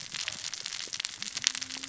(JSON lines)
{"label": "biophony, cascading saw", "recorder": "SoundTrap 600 or HydroMoth"}